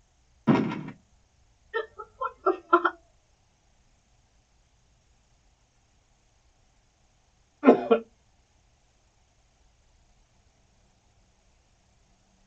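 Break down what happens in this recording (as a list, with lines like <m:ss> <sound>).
0:00 gunfire can be heard
0:02 laughter is audible
0:08 someone coughs
a continuous faint noise lies about 40 decibels below the sounds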